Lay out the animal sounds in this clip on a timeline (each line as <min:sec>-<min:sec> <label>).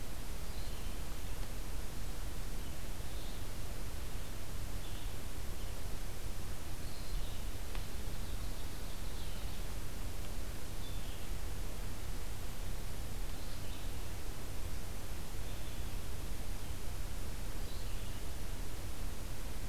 0:00.4-0:19.7 Red-eyed Vireo (Vireo olivaceus)
0:07.8-0:09.7 Ovenbird (Seiurus aurocapilla)